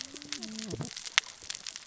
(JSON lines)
{"label": "biophony, cascading saw", "recorder": "SoundTrap 600 or HydroMoth"}